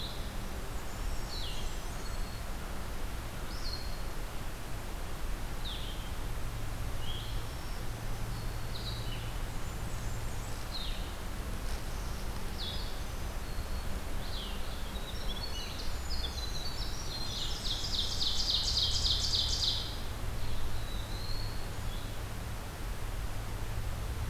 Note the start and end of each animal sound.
[0.00, 9.12] Blue-headed Vireo (Vireo solitarius)
[0.61, 2.37] Blackburnian Warbler (Setophaga fusca)
[0.85, 2.44] Black-throated Green Warbler (Setophaga virens)
[7.21, 9.08] Black-throated Green Warbler (Setophaga virens)
[9.36, 10.81] Blackburnian Warbler (Setophaga fusca)
[10.54, 14.62] Blue-headed Vireo (Vireo solitarius)
[12.52, 14.06] Black-throated Green Warbler (Setophaga virens)
[14.60, 18.49] Winter Wren (Troglodytes hiemalis)
[16.98, 18.45] Blackburnian Warbler (Setophaga fusca)
[17.00, 19.79] Ovenbird (Seiurus aurocapilla)
[20.33, 21.71] Black-throated Blue Warbler (Setophaga caerulescens)

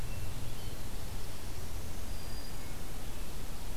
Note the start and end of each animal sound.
[0.01, 0.80] Hermit Thrush (Catharus guttatus)
[1.26, 2.78] Black-throated Green Warbler (Setophaga virens)

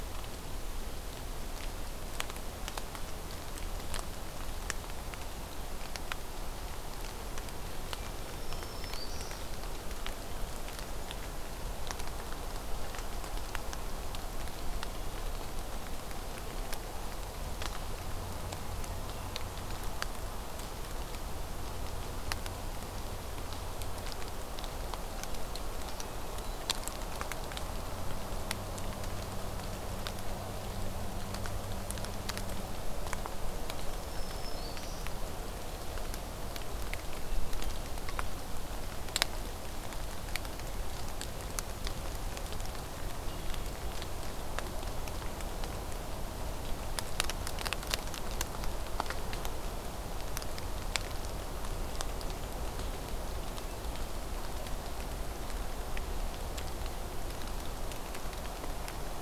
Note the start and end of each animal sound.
[7.84, 8.58] Hermit Thrush (Catharus guttatus)
[8.21, 9.51] Black-throated Green Warbler (Setophaga virens)
[18.75, 19.69] Hermit Thrush (Catharus guttatus)
[33.84, 35.09] Black-throated Green Warbler (Setophaga virens)
[37.24, 38.02] Hermit Thrush (Catharus guttatus)
[43.13, 43.95] Hermit Thrush (Catharus guttatus)

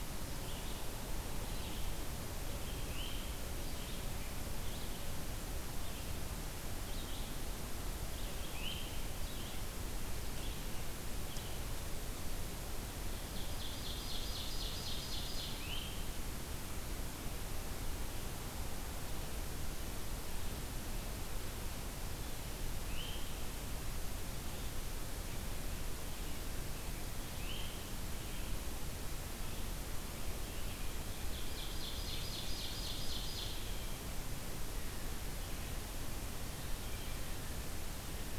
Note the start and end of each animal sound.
[2.82, 3.28] Scarlet Tanager (Piranga olivacea)
[8.37, 9.05] Scarlet Tanager (Piranga olivacea)
[13.28, 15.68] Ovenbird (Seiurus aurocapilla)
[15.59, 15.99] Scarlet Tanager (Piranga olivacea)
[22.60, 23.36] Scarlet Tanager (Piranga olivacea)
[27.29, 28.08] Scarlet Tanager (Piranga olivacea)
[31.12, 33.73] Ovenbird (Seiurus aurocapilla)

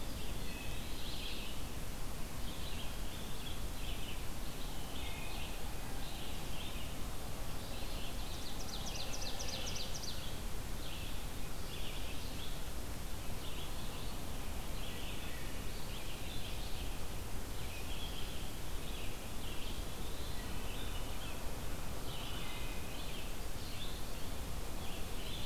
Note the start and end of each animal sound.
[0.00, 25.46] Red-eyed Vireo (Vireo olivaceus)
[0.15, 1.12] Wood Thrush (Hylocichla mustelina)
[4.60, 5.53] Wood Thrush (Hylocichla mustelina)
[7.20, 8.29] Eastern Wood-Pewee (Contopus virens)
[8.10, 10.33] Ovenbird (Seiurus aurocapilla)
[15.21, 15.81] Wood Thrush (Hylocichla mustelina)
[19.68, 20.46] Eastern Wood-Pewee (Contopus virens)
[20.33, 20.91] Wood Thrush (Hylocichla mustelina)
[21.96, 23.14] Wood Thrush (Hylocichla mustelina)

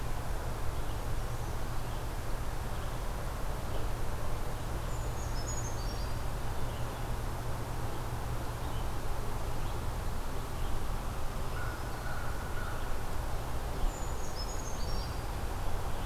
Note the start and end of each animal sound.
[0.00, 16.05] Red-eyed Vireo (Vireo olivaceus)
[4.82, 6.22] Brown Creeper (Certhia americana)
[11.47, 12.85] American Crow (Corvus brachyrhynchos)
[13.71, 15.31] Brown Creeper (Certhia americana)

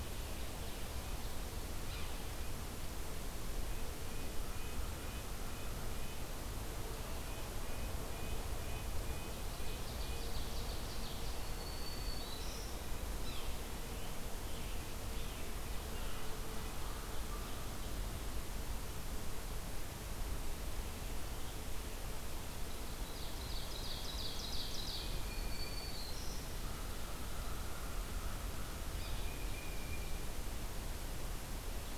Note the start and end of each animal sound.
[1.76, 2.16] Yellow-bellied Sapsucker (Sphyrapicus varius)
[3.55, 6.27] Red-breasted Nuthatch (Sitta canadensis)
[7.21, 10.32] Red-breasted Nuthatch (Sitta canadensis)
[9.15, 11.60] Ovenbird (Seiurus aurocapilla)
[11.39, 12.75] Black-throated Green Warbler (Setophaga virens)
[13.14, 13.54] Yellow-bellied Sapsucker (Sphyrapicus varius)
[13.83, 16.34] Scarlet Tanager (Piranga olivacea)
[22.80, 25.34] Ovenbird (Seiurus aurocapilla)
[24.91, 26.00] Tufted Titmouse (Baeolophus bicolor)
[25.09, 26.56] Black-throated Green Warbler (Setophaga virens)
[26.50, 29.27] Yellow-bellied Sapsucker (Sphyrapicus varius)
[28.85, 30.36] Tufted Titmouse (Baeolophus bicolor)

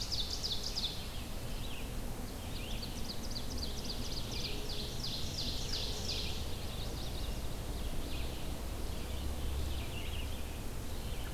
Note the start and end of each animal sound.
[0.00, 1.33] Ovenbird (Seiurus aurocapilla)
[0.00, 11.33] Red-eyed Vireo (Vireo olivaceus)
[2.02, 6.57] Ovenbird (Seiurus aurocapilla)
[6.38, 7.49] Chestnut-sided Warbler (Setophaga pensylvanica)
[8.77, 9.64] Eastern Wood-Pewee (Contopus virens)

